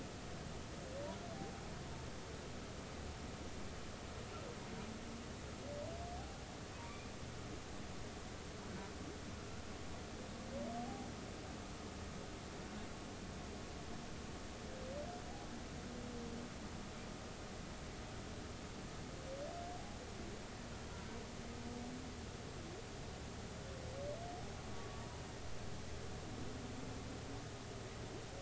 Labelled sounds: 6.8	7.1	humpback whale, 2.2 to 2.5 kHz
9.4	9.6	humpback whale, 1.3 to 1.4 kHz

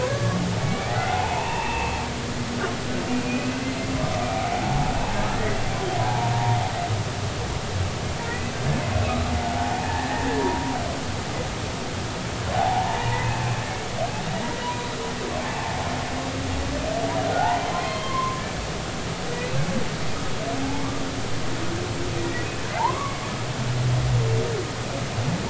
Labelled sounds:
0.0	2.0	humpback whale, 0.80 to 2.8 kHz
3.1	3.5	humpback whale, 2.4 to 2.6 kHz
4.2	4.9	humpback whale, 0.80 to 2.4 kHz
6.0	6.6	humpback whale, 0.80 to 1.0 kHz
8.3	8.5	humpback whale, 1.8 to 2.1 kHz
9.8	10.8	humpback whale, 0.90 to 1.9 kHz
12.5	13.9	humpback whale, 0.80 to 2.7 kHz
14.6	14.9	humpback whale, 0.93 to 1.0 kHz
17.3	18.4	humpback whale, 0.96 to 4.3 kHz
19.3	19.6	humpback whale, 2.4 to 2.7 kHz
20.6	20.9	humpback whale, 0.80 to 0.93 kHz
22.2	23.2	humpback whale, 0.80 to 2.3 kHz

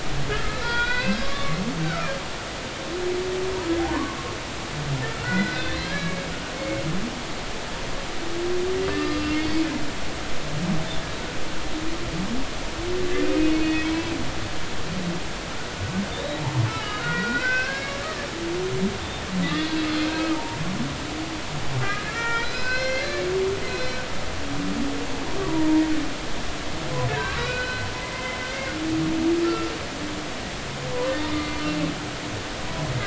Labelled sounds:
0.3	2.1	humpback whale, 0.90 to 4.9 kHz
3.8	4.2	humpback whale, 0.80 to 1.2 kHz
5.2	6.3	humpback whale, 1.4 to 4.3 kHz
6.5	6.8	humpback whale, 2.1 to 2.2 kHz
8.9	9.6	humpback whale, 1.2 to 4.9 kHz
13.5	13.9	humpback whale, 2.5 to 4.4 kHz
16.1	16.4	humpback whale, 3.5 to 3.9 kHz
17.0	18.0	humpback whale, 1.3 to 5.2 kHz
19.5	19.8	humpback whale, 3.3 to 3.5 kHz
20.3	20.6	humpback whale, 0.86 to 0.99 kHz
21.8	23.2	humpback whale, 0.90 to 5.3 kHz
23.6	24.0	humpback whale, 4.0 to 5.6 kHz
25.5	25.8	humpback whale, 0.90 to 1.0 kHz
27.1	28.8	humpback whale, 1.3 to 4.2 kHz
29.4	29.7	humpback whale, 1.3 to 1.4 kHz
31.3	31.6	humpback whale, 2.0 to 2.1 kHz

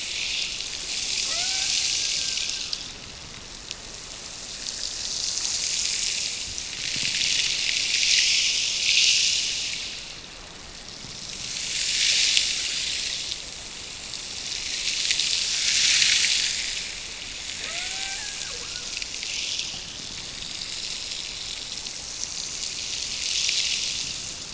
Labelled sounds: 1.3	2.7	killer whale, Bigg's (transient), Gulf of Alaska transient, 0.50 to 2.4 kHz
17.6	19.1	killer whale, Bigg's (transient), Gulf of Alaska transient, 0.39 to 2.5 kHz

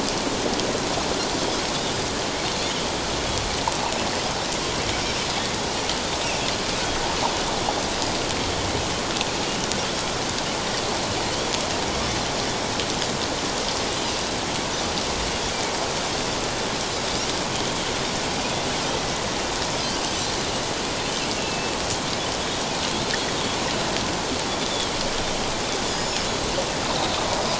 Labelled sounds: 21.3	21.7	Pacific white-sided dolphin, 2.6 to 2.8 kHz
25.9	26.3	Pacific white-sided dolphin, 4.9 to 5.4 kHz

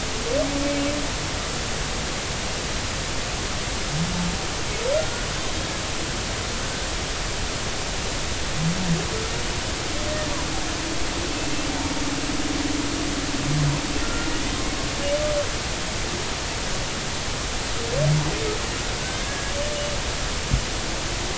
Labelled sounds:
14.0	14.3	humpback whale, 1.3 to 1.4 kHz
19.0	19.5	humpback whale, 1.5 to 1.7 kHz

